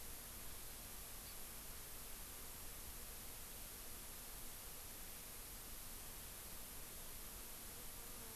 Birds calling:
Hawaii Amakihi (Chlorodrepanis virens)

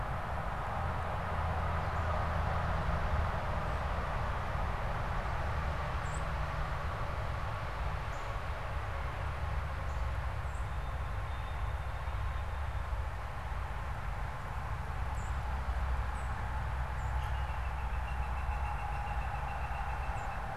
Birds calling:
Northern Cardinal (Cardinalis cardinalis)
Song Sparrow (Melospiza melodia)
unidentified bird
Northern Flicker (Colaptes auratus)

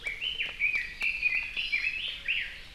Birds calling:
Hawaii Amakihi (Chlorodrepanis virens)
Red-billed Leiothrix (Leiothrix lutea)

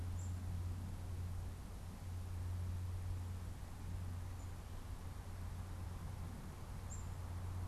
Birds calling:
Black-capped Chickadee (Poecile atricapillus)

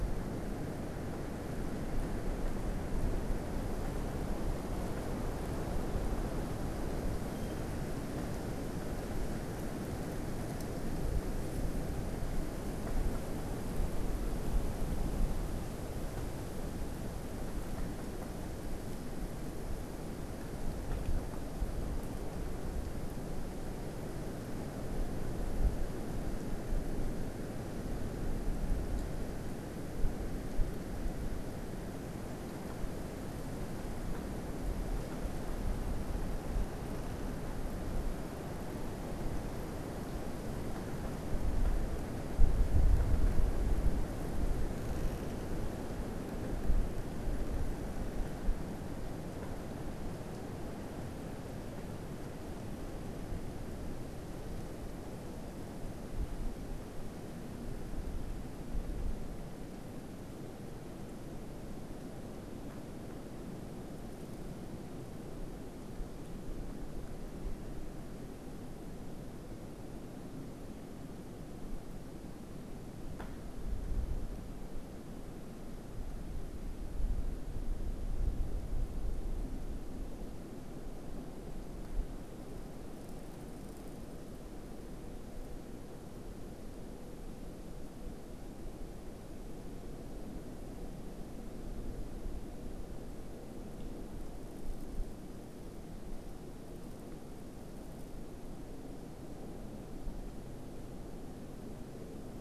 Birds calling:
unidentified bird

